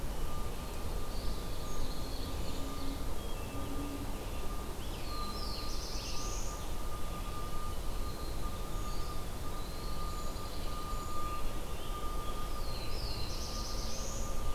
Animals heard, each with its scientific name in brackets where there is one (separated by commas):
Eastern Wood-Pewee (Contopus virens), Pine Warbler (Setophaga pinus), Ovenbird (Seiurus aurocapilla), Black-throated Blue Warbler (Setophaga caerulescens)